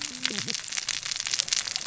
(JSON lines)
{"label": "biophony, cascading saw", "recorder": "SoundTrap 600 or HydroMoth"}